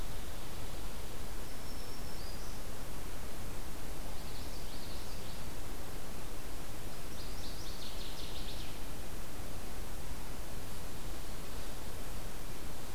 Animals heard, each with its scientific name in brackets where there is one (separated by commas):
Common Yellowthroat (Geothlypis trichas), Northern Waterthrush (Parkesia noveboracensis), Black-throated Green Warbler (Setophaga virens)